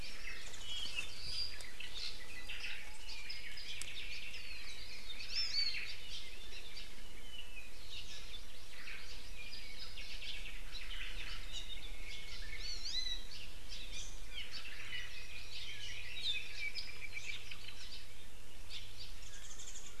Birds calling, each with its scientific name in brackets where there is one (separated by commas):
Japanese Bush Warbler (Horornis diphone), Hawaii Creeper (Loxops mana), Omao (Myadestes obscurus), Hawaii Amakihi (Chlorodrepanis virens), Iiwi (Drepanis coccinea), Apapane (Himatione sanguinea), Warbling White-eye (Zosterops japonicus)